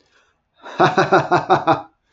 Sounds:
Laughter